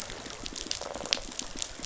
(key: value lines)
label: biophony, rattle
recorder: SoundTrap 500